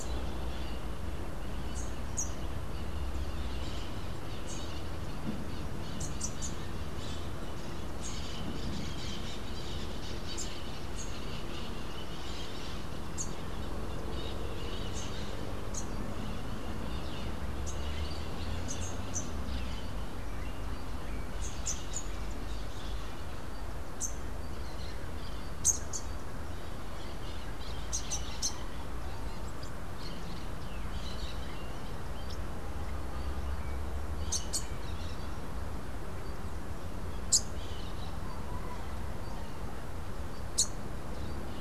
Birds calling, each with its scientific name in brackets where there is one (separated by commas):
Melodious Blackbird (Dives dives), Crimson-fronted Parakeet (Psittacara finschi), Rufous-capped Warbler (Basileuterus rufifrons)